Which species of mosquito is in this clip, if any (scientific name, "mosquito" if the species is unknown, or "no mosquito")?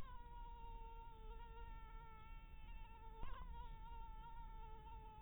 mosquito